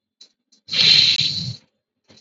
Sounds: Sigh